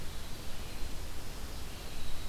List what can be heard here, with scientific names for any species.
Vireo olivaceus, Troglodytes hiemalis